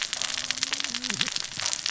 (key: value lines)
label: biophony, cascading saw
recorder: SoundTrap 600 or HydroMoth